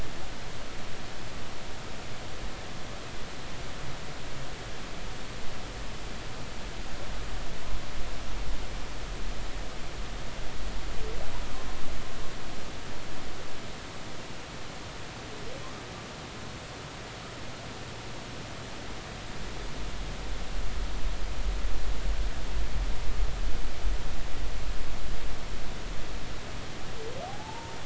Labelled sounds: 27.3	27.8	humpback whale, 0.80 to 0.99 kHz

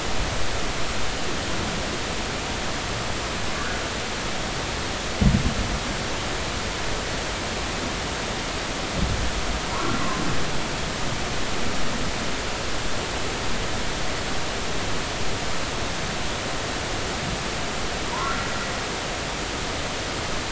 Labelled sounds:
18.1	18.3	humpback whale, 0.90 to 1.2 kHz

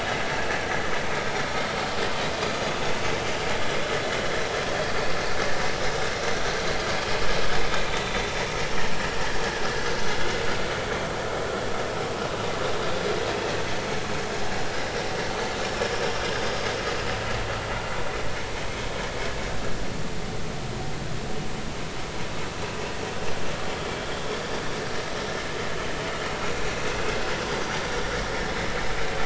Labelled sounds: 9.0	10.3	vessel noise, 3.3 to 3.6 kHz
27.5	27.8	vessel noise, 4.6 to 4.8 kHz

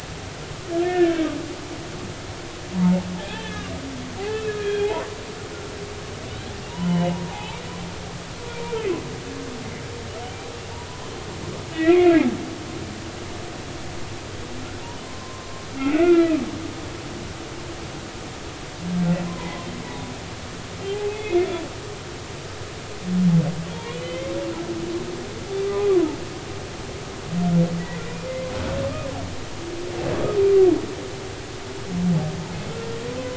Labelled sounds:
2.7	3.7	humpback whale, 0.80 to 3.6 kHz
4.2	5.2	humpback whale, 0.80 to 3.4 kHz
6.7	7.6	humpback whale, 0.80 to 3.0 kHz
11.7	12.2	humpback whale, 1.9 to 2.6 kHz
15.0	15.5	humpback whale, 0.96 to 1.1 kHz
15.9	16.4	humpback whale, 1.1 to 2.5 kHz
19.3	19.7	humpback whale, 0.90 to 2.1 kHz
20.8	21.5	humpback whale, 0.80 to 2.6 kHz
23.7	24.3	humpback whale, 0.86 to 3.2 kHz
25.9	26.2	humpback whale, 0.83 to 1.2 kHz

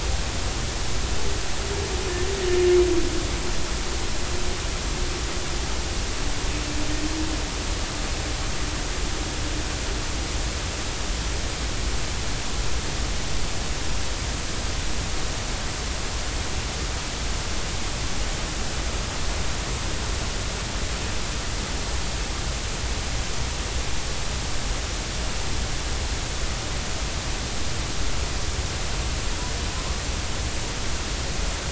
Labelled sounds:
29.8	30.0	humpback whale, 0.99 to 1.2 kHz

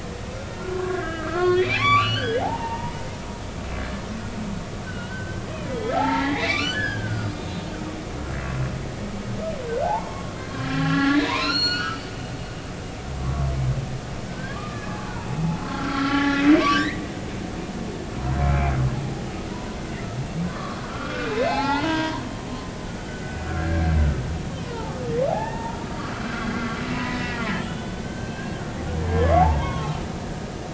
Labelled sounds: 0.3	3.0	humpback whale, 0.80 to 4.7 kHz
4.8	7.6	humpback whale, 0.80 to 5.2 kHz
10.1	12.1	humpback whale, 0.90 to 7.3 kHz
14.3	15.0	humpback whale, 1.1 to 1.8 kHz
15.7	17.0	humpback whale, 0.96 to 3.1 kHz
18.4	18.7	humpback whale, 2.2 to 2.5 kHz
19.5	19.8	humpback whale, 0.90 to 1.1 kHz
20.5	22.2	humpback whale, 0.80 to 4.5 kHz
23.0	23.9	humpback whale, 1.3 to 3.1 kHz
25.3	25.8	humpback whale, 0.80 to 1.9 kHz
26.3	28.5	humpback whale, 0.93 to 3.6 kHz
29.4	30.1	humpback whale, 0.80 to 3.5 kHz

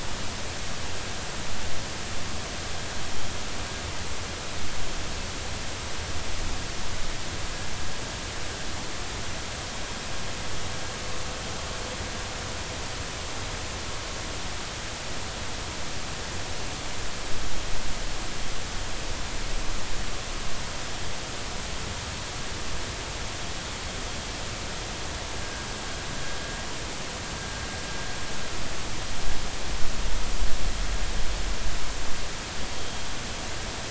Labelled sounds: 32.7	33.0	vessel noise, 3.2 to 3.3 kHz

